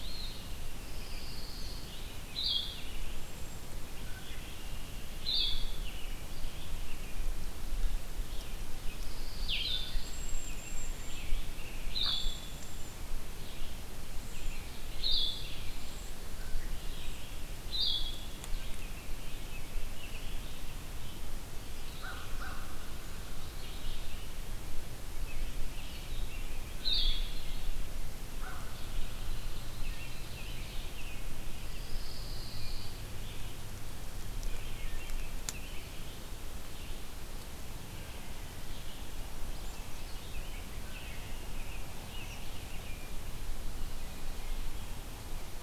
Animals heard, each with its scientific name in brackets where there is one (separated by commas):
Red-eyed Vireo (Vireo olivaceus), Pine Warbler (Setophaga pinus), Red-winged Blackbird (Agelaius phoeniceus), American Robin (Turdus migratorius), Eastern Wood-Pewee (Contopus virens), Black-capped Chickadee (Poecile atricapillus), Blue-headed Vireo (Vireo solitarius), Ovenbird (Seiurus aurocapilla), American Crow (Corvus brachyrhynchos), Hooded Merganser (Lophodytes cucullatus), Cedar Waxwing (Bombycilla cedrorum)